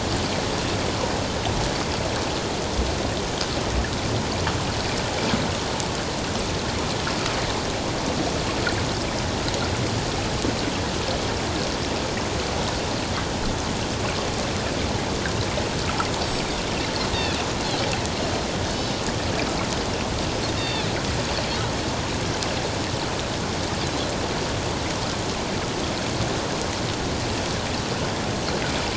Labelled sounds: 20.6	20.9	Pacific white-sided dolphin, 2.2 to 4.7 kHz

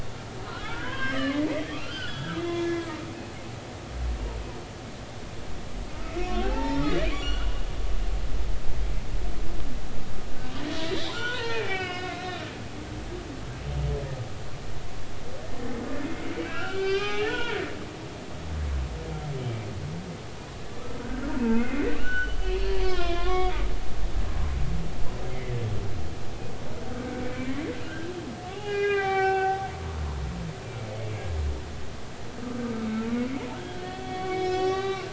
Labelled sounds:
0.6	3.1	humpback whale, 0.96 to 5.1 kHz
5.9	7.6	humpback whale, 0.80 to 6.0 kHz
10.4	10.6	humpback whale, 2.7 to 3.0 kHz
11.1	12.2	humpback whale, 0.83 to 5.2 kHz
16.3	17.6	humpback whale, 0.80 to 5.3 kHz
21.0	23.6	humpback whale, 0.83 to 4.9 kHz
25.3	25.5	humpback whale, 1.9 to 2.2 kHz
26.9	27.5	humpback whale, 1.4 to 2.4 kHz
27.8	29.7	humpback whale, 0.80 to 4.0 kHz
33.5	35.1	humpback whale, 0.80 to 5.3 kHz

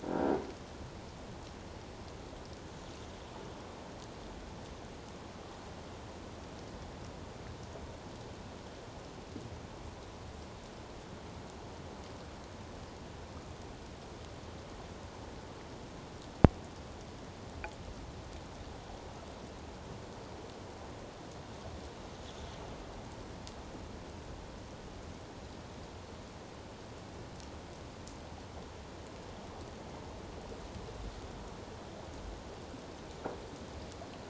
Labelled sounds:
0.1	0.3	croaking sound likely from a nearby submerged object, 1.5 to 1.7 kHz

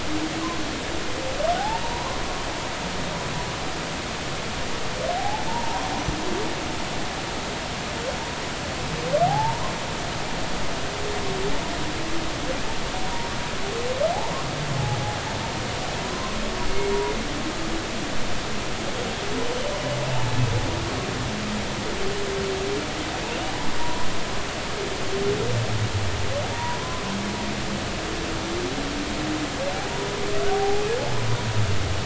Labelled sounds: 1.5	2.2	humpback whale, 0.80 to 4.1 kHz
5.2	5.9	humpback whale, 0.80 to 1.2 kHz
9.3	9.6	humpback whale, 0.80 to 0.99 kHz
16.0	16.4	humpback whale, 0.93 to 1.1 kHz
23.8	24.1	humpback whale, 0.90 to 1.1 kHz
26.5	26.8	humpback whale, 0.90 to 1.0 kHz
30.5	30.8	humpback whale, 0.80 to 0.86 kHz

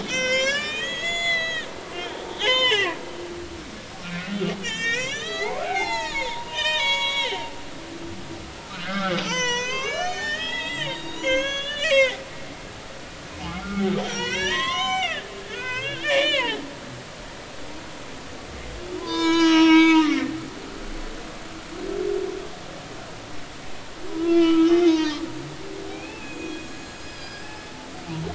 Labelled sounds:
0.0	1.7	humpback whale, 0.96 to 8.0 kHz
2.4	3.0	humpback whale, 0.80 to 6.8 kHz
4.0	7.5	humpback whale, 0.80 to 7.5 kHz
8.5	12.2	humpback whale, 0.83 to 7.7 kHz
12.9	16.6	humpback whale, 0.80 to 7.6 kHz
17.3	17.6	humpback whale, 0.80 to 1.2 kHz
19.0	20.6	humpback whale, 0.83 to 6.7 kHz
24.1	27.6	humpback whale, 0.86 to 6.8 kHz

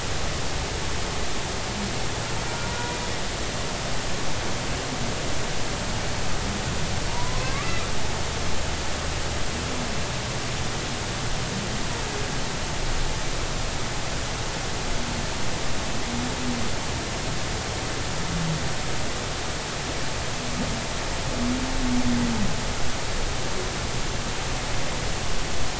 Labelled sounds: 2.4	2.7	humpback whale, 1.3 to 1.5 kHz
7.1	7.7	humpback whale, 0.90 to 1.3 kHz

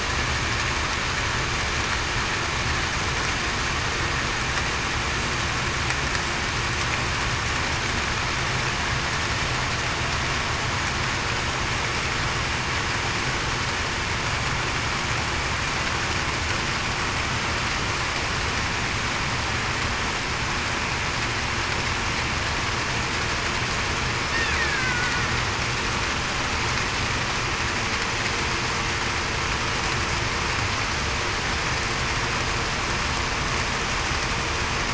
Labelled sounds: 24.7	25.2	killer whale, Bigg's (transient), 1.4 to 1.6 kHz

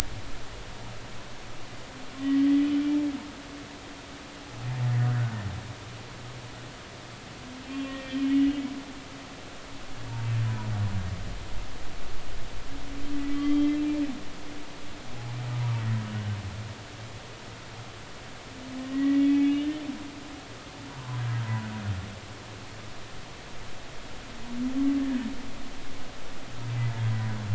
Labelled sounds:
2.2	2.5	humpback whale, 1.8 to 2.0 kHz
7.6	8.2	humpback whale, 1.0 to 2.8 kHz
13.1	13.8	humpback whale, 1.1 to 3.3 kHz
18.8	19.7	humpback whale, 1.8 to 3.0 kHz
20.9	21.2	humpback whale, 0.90 to 1.1 kHz

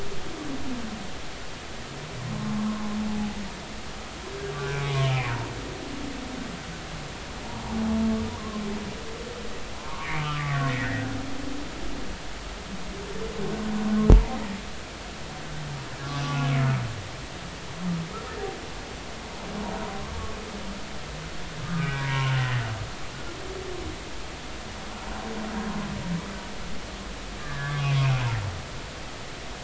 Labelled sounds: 3.1	3.4	humpback whale, 0.80 to 0.86 kHz
4.6	5.3	humpback whale, 1.0 to 2.6 kHz
8.4	8.6	humpback whale, 0.99 to 1.2 kHz
9.8	11.1	humpback whale, 0.83 to 2.4 kHz
16.2	16.5	humpback whale, 1.4 to 1.5 kHz
21.6	22.4	humpback whale, 0.90 to 2.5 kHz
27.4	28.0	humpback whale, 1.1 to 1.9 kHz

